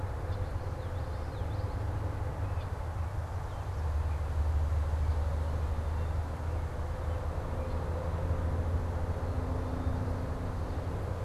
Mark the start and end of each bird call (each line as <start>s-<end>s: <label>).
0.0s-11.2s: American Robin (Turdus migratorius)
0.2s-2.1s: Common Yellowthroat (Geothlypis trichas)
2.4s-2.8s: Red-winged Blackbird (Agelaius phoeniceus)